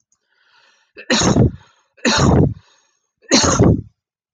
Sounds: Cough